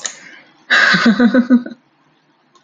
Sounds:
Laughter